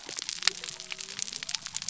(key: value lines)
label: biophony
recorder: SoundTrap 300